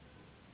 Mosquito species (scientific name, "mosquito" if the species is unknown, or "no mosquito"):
Anopheles gambiae s.s.